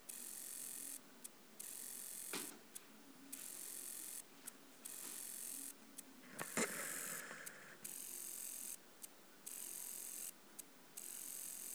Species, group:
Conocephalus brevipennis
Orthoptera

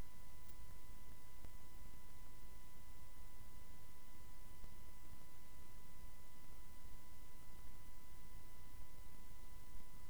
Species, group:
Tessellana tessellata
Orthoptera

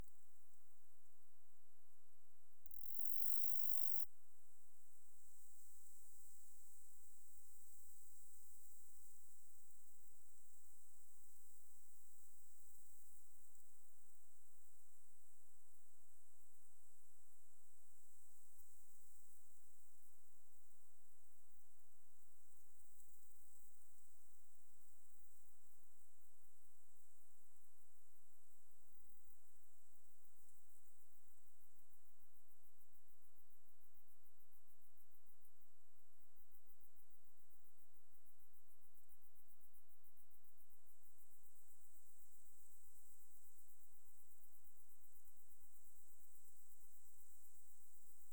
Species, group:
Saga hellenica
Orthoptera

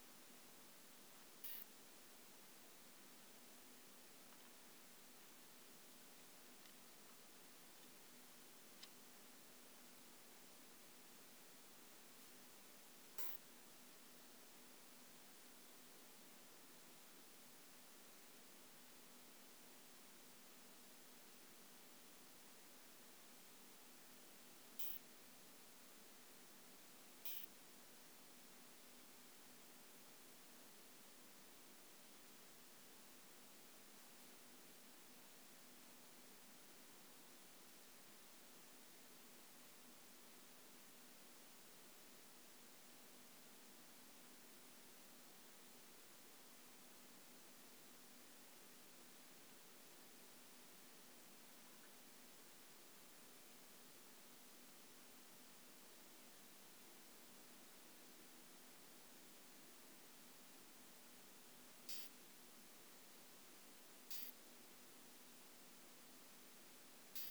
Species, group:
Isophya modestior
Orthoptera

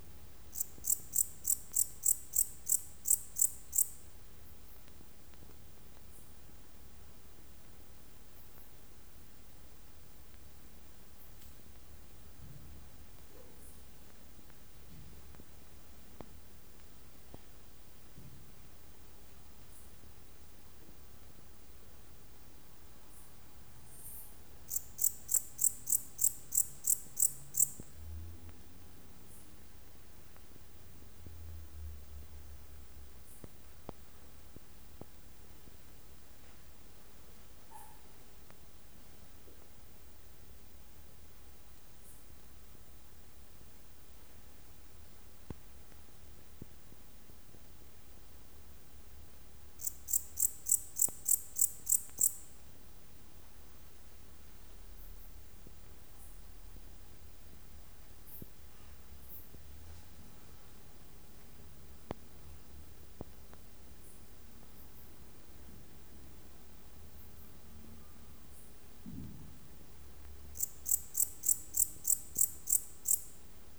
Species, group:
Pholidoptera aptera
Orthoptera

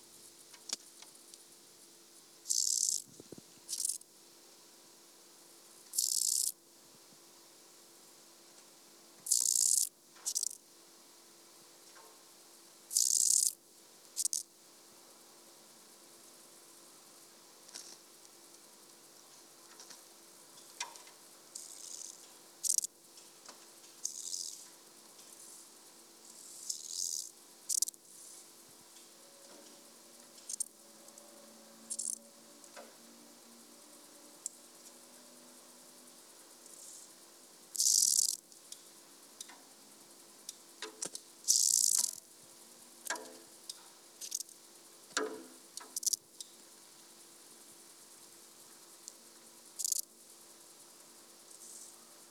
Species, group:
Chorthippus brunneus
Orthoptera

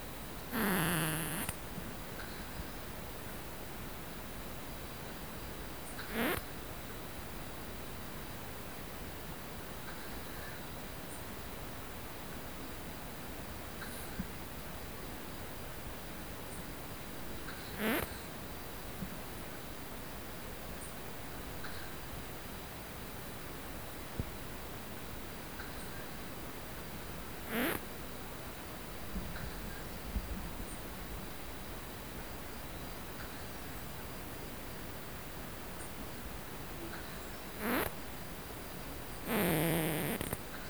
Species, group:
Poecilimon lodosi
Orthoptera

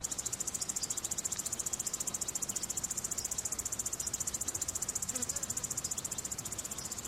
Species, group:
Tettigettalna argentata
Cicadidae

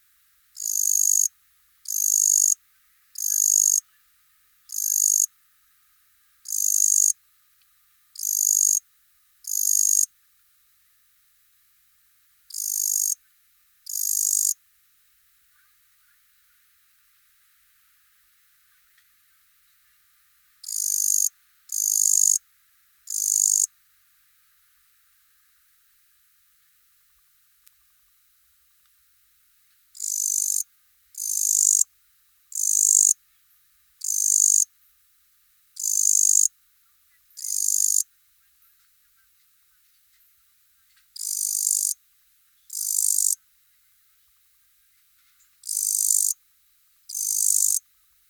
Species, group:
Tettigonia cantans
Orthoptera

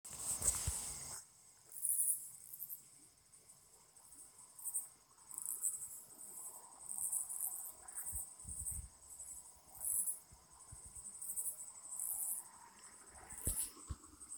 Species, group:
Amblycorypha oblongifolia
Orthoptera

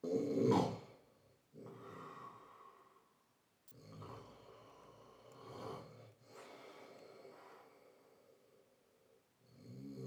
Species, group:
Odontura aspericauda
Orthoptera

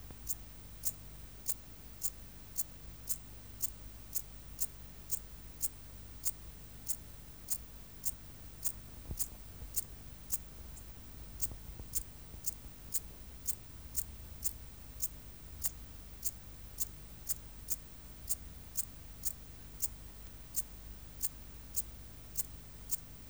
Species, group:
Eupholidoptera schmidti
Orthoptera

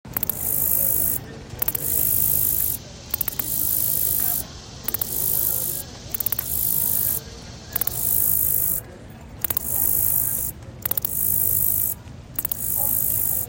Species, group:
Orchelimum pulchellum
Orthoptera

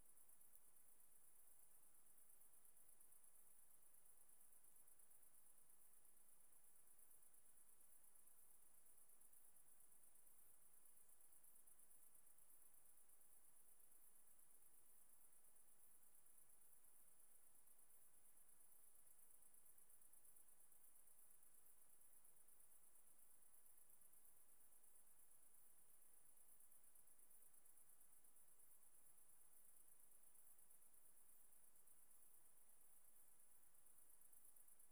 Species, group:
Roeseliana roeselii
Orthoptera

